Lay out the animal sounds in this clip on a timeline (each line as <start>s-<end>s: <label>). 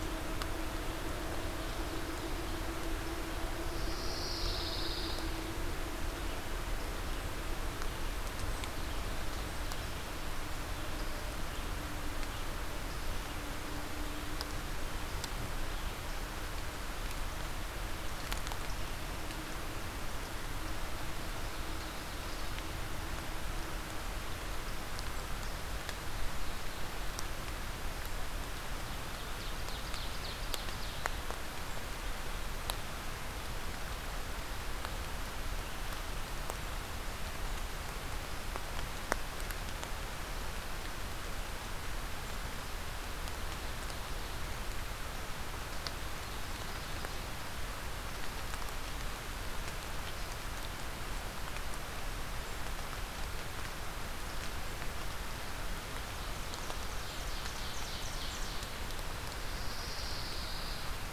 3.6s-5.3s: Pine Warbler (Setophaga pinus)
21.1s-22.7s: Ovenbird (Seiurus aurocapilla)
28.9s-31.1s: Ovenbird (Seiurus aurocapilla)
56.3s-58.7s: Ovenbird (Seiurus aurocapilla)
59.5s-61.0s: Pine Warbler (Setophaga pinus)